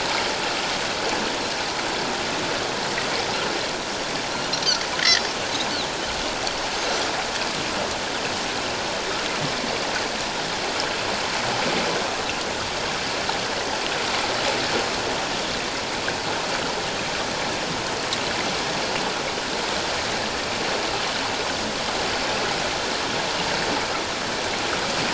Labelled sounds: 5.0	5.3	Pacific white-sided dolphin, 4.6 to 4.8 kHz

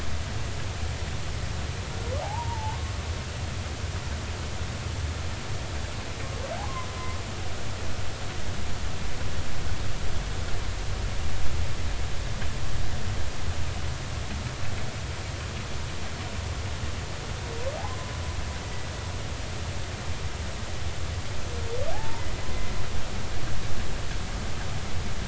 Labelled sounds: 2.2	2.9	humpback whale, 0.80 to 1.1 kHz
6.6	6.9	humpback whale, 0.80 to 1.2 kHz
17.8	18.9	humpback whale, 0.80 to 2.0 kHz
21.9	22.3	humpback whale, 0.80 to 1.1 kHz

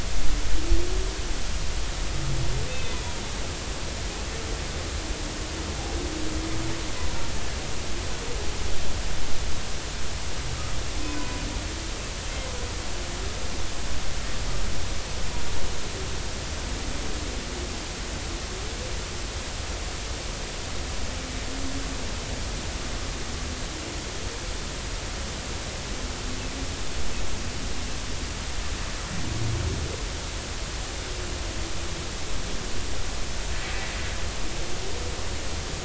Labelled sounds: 2.7	3.0	humpback whale, 2.5 to 3.7 kHz
11.0	11.4	humpback whale, 0.93 to 1.1 kHz

